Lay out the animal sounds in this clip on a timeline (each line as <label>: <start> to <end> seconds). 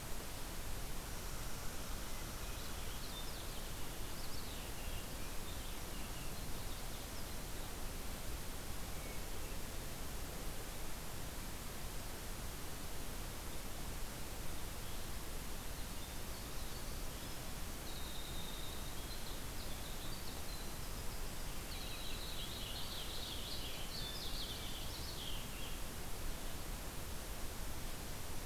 Purple Finch (Haemorhous purpureus): 2.4 to 6.9 seconds
Hermit Thrush (Catharus guttatus): 8.6 to 9.6 seconds
Winter Wren (Troglodytes hiemalis): 15.8 to 25.4 seconds
Northern Waterthrush (Parkesia noveboracensis): 21.9 to 26.0 seconds